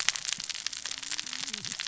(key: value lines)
label: biophony, cascading saw
recorder: SoundTrap 600 or HydroMoth